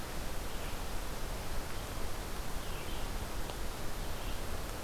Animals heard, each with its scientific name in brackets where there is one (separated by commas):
Red-eyed Vireo (Vireo olivaceus)